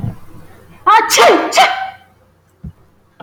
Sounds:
Sneeze